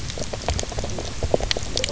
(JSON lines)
{"label": "biophony, knock croak", "recorder": "SoundTrap 300"}